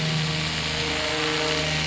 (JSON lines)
{"label": "anthrophony, boat engine", "recorder": "SoundTrap 500"}